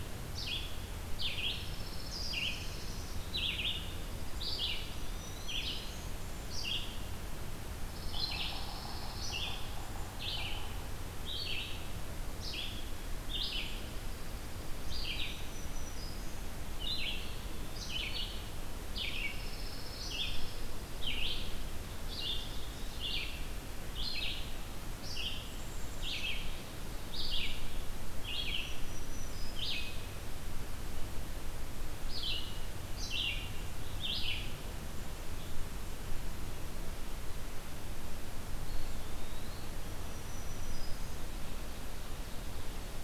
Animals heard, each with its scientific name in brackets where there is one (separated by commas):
Golden-crowned Kinglet (Regulus satrapa), Dark-eyed Junco (Junco hyemalis), Black-throated Green Warbler (Setophaga virens), Red-eyed Vireo (Vireo olivaceus), Pine Warbler (Setophaga pinus), Yellow-bellied Sapsucker (Sphyrapicus varius), Eastern Wood-Pewee (Contopus virens), Ovenbird (Seiurus aurocapilla)